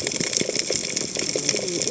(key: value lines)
label: biophony, cascading saw
recorder: HydroMoth